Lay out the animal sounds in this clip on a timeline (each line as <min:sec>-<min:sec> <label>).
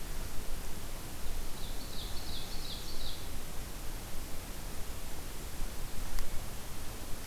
0:01.2-0:03.3 Ovenbird (Seiurus aurocapilla)